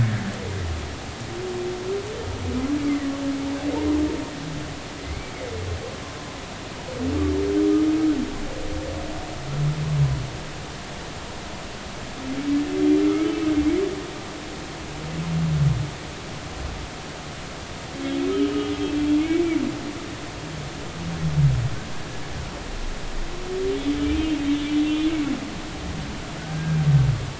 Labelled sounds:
0.0	0.4	humpback whale, 1.6 to 1.9 kHz
5.0	5.3	humpback whale, 2.0 to 2.4 kHz
13.0	13.3	humpback whale, 1.2 to 1.4 kHz
18.0	18.7	humpback whale, 2.8 to 3.4 kHz
19.2	19.4	humpback whale, 2.1 to 2.3 kHz
23.8	24.0	humpback whale, 3.3 to 3.5 kHz
24.4	25.1	humpback whale, 2.9 to 3.5 kHz
26.4	26.8	humpback whale, 1.4 to 1.7 kHz

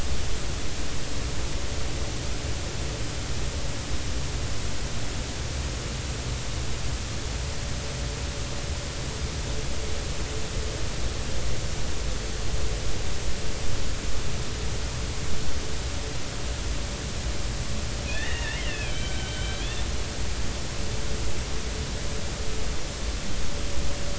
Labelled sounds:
18.0	19.6	killer whale, Bigg's (transient), 1.5 to 3.3 kHz

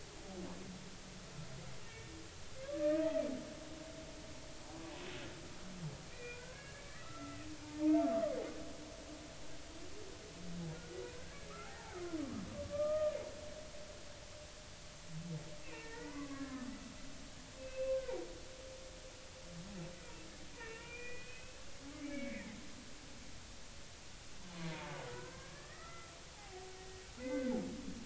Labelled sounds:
1.8	3.1	humpback whale, 1.1 to 2.8 kHz
6.1	8.0	humpback whale, 0.80 to 2.5 kHz
11.1	11.5	humpback whale, 1.5 to 1.8 kHz
12.6	13.2	humpback whale, 1.1 to 1.3 kHz
15.6	16.7	humpback whale, 1.2 to 2.8 kHz
17.1	18.0	humpback whale, 0.86 to 2.7 kHz
20.5	21.6	humpback whale, 1.3 to 2.9 kHz
22.0	22.6	humpback whale, 1.6 to 2.5 kHz
24.5	24.7	humpback whale, 0.93 to 1.1 kHz
25.1	26.7	humpback whale, 0.80 to 2.1 kHz
27.2	27.5	humpback whale, 1.5 to 2.1 kHz

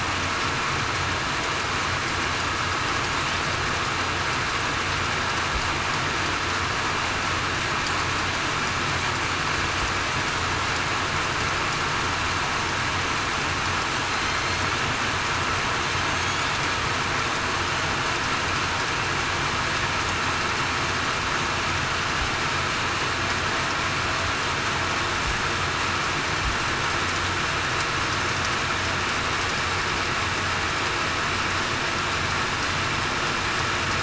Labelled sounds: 14.1	14.4	killer whale, southern resident, 4.1 to 4.2 kHz
16.0	16.4	killer whale, southern resident, 6.3 to 6.7 kHz

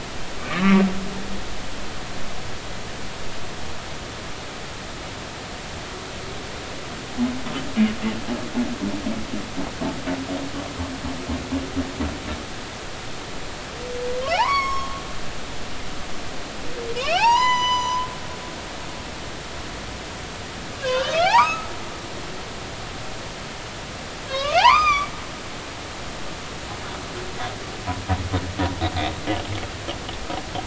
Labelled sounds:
0.5	0.8	humpback whale, 2.0 to 2.2 kHz
14.3	15.0	humpback whale, 0.80 to 6.8 kHz
16.9	18.1	humpback whale, 0.80 to 7.1 kHz
20.7	21.7	humpback whale, 0.80 to 5.2 kHz
24.3	25.1	humpback whale, 0.80 to 5.1 kHz

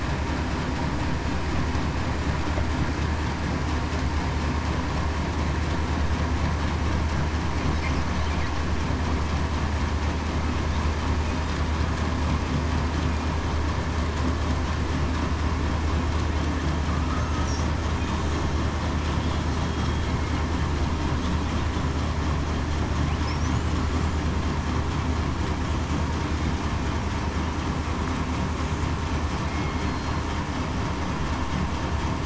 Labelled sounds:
29.4	29.8	killer whale, southern resident, 2.1 to 2.2 kHz

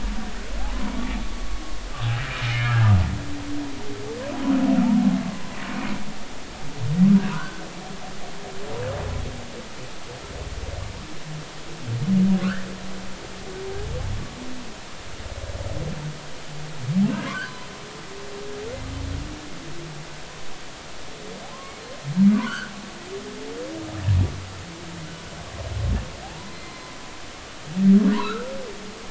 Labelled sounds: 1.5	1.8	humpback whale, 1.06 to 1.12 kHz
2.5	2.9	humpback whale, 1.5 to 1.8 kHz
7.3	7.6	humpback whale, 1.3 to 1.6 kHz
12.4	12.7	humpback whale, 1.1 to 1.9 kHz
17.3	17.7	humpback whale, 0.93 to 1.2 kHz
21.5	21.8	humpback whale, 0.99 to 1.2 kHz
22.3	22.7	humpback whale, 0.93 to 3.5 kHz
26.2	26.7	humpback whale, 0.80 to 2.1 kHz
28.2	28.5	humpback whale, 1.2 to 1.7 kHz

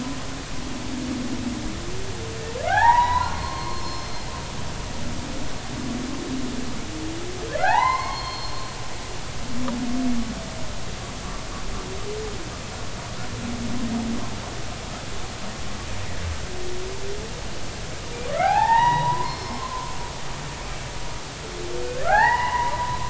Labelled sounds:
2.7	4.1	humpback whale, 0.80 to 5.3 kHz
7.6	8.6	humpback whale, 0.80 to 4.4 kHz
18.3	19.9	humpback whale, 0.80 to 5.3 kHz
22.0	23.0	humpback whale, 0.80 to 3.0 kHz

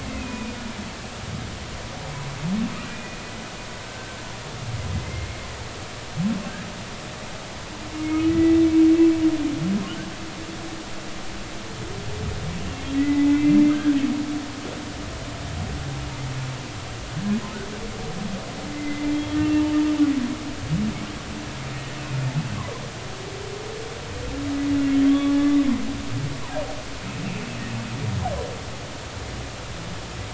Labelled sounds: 0.0	0.5	humpback whale, 2.0 to 2.8 kHz
2.9	4.2	humpback whale, 1.5 to 2.5 kHz
4.9	5.3	humpback whale, 2.0 to 2.2 kHz
8.0	8.5	humpback whale, 1.9 to 2.2 kHz
13.0	14.0	humpback whale, 1.4 to 2.7 kHz
18.7	19.6	humpback whale, 2.0 to 3.4 kHz
25.1	25.4	humpback whale, 1.1 to 1.2 kHz

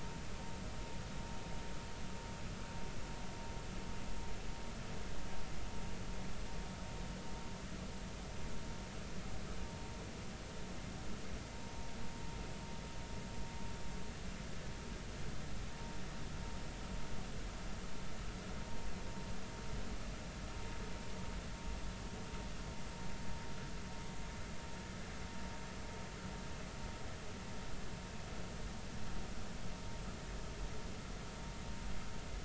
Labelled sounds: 11.6	11.9	vessel noise, 0.90 to 0.99 kHz

